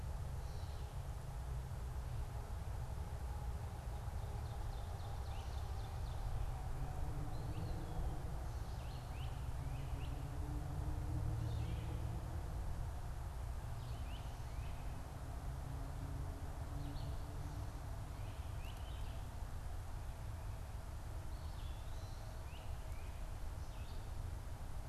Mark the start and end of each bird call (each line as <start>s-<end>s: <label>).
4.2s-6.5s: Ovenbird (Seiurus aurocapilla)
7.1s-8.1s: Eastern Wood-Pewee (Contopus virens)
8.7s-9.0s: Red-eyed Vireo (Vireo olivaceus)
9.0s-10.2s: Great Crested Flycatcher (Myiarchus crinitus)
11.3s-11.8s: Red-eyed Vireo (Vireo olivaceus)
13.6s-18.8s: Great Crested Flycatcher (Myiarchus crinitus)
21.3s-22.4s: Eastern Wood-Pewee (Contopus virens)
22.4s-23.2s: Great Crested Flycatcher (Myiarchus crinitus)